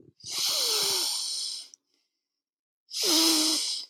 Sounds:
Sigh